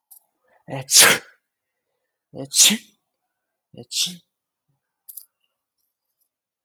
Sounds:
Sneeze